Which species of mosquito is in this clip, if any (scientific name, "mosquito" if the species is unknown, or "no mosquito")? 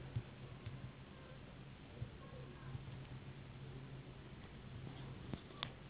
Anopheles gambiae s.s.